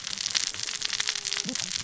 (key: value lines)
label: biophony, cascading saw
recorder: SoundTrap 600 or HydroMoth